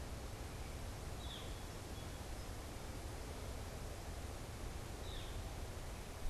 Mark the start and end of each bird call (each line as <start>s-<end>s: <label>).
0.0s-5.4s: Northern Flicker (Colaptes auratus)